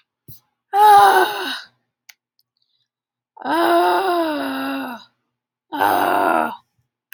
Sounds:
Sigh